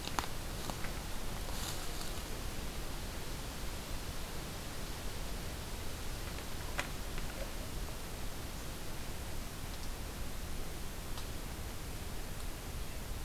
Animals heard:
forest ambience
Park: Katahdin Woods and Waters National Monument